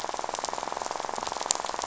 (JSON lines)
{"label": "biophony, rattle", "recorder": "SoundTrap 500"}